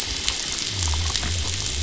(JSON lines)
{"label": "biophony", "recorder": "SoundTrap 500"}